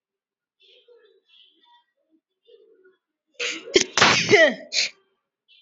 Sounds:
Sneeze